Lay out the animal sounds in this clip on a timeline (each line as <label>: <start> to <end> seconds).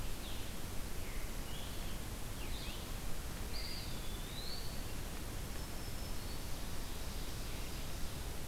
Scarlet Tanager (Piranga olivacea): 0.0 to 3.1 seconds
Eastern Wood-Pewee (Contopus virens): 3.3 to 5.0 seconds
Black-throated Green Warbler (Setophaga virens): 5.4 to 6.8 seconds
Ovenbird (Seiurus aurocapilla): 6.1 to 8.4 seconds